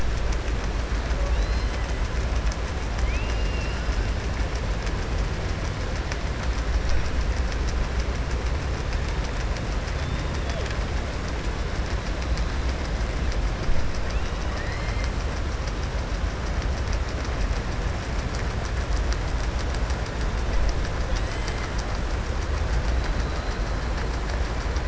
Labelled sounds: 3.0	3.8	killer whale, southern resident, 2.1 to 3.2 kHz
14.4	15.1	killer whale, southern resident, 1.1 to 3.1 kHz

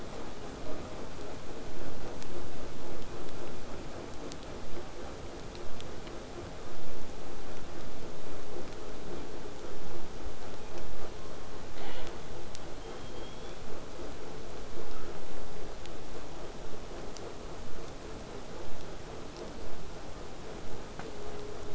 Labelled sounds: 11.1	12.1	killer whale, southern resident, 0.16 to 7.2 kHz

